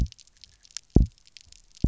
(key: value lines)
label: biophony, double pulse
recorder: SoundTrap 300